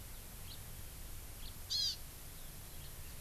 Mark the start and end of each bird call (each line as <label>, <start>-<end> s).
House Finch (Haemorhous mexicanus), 0.5-0.6 s
House Finch (Haemorhous mexicanus), 1.4-1.5 s
Hawaii Amakihi (Chlorodrepanis virens), 1.7-2.0 s